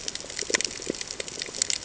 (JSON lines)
{"label": "ambient", "recorder": "HydroMoth"}